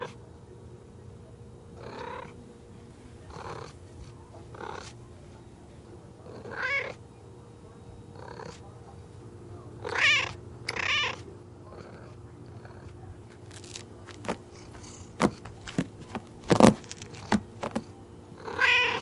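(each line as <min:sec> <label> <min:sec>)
0:00.0 A cat is gently purring. 0:00.2
0:01.6 A cat purrs gently and repeatedly indoors. 0:05.3
0:06.1 A cat meows calmly and repeatedly indoors. 0:11.5
0:06.1 A cat purring softly indoors. 0:11.5
0:13.4 A cat meows gently. 0:19.0
0:13.4 A cat scratches a wool-like material repeatedly. 0:19.0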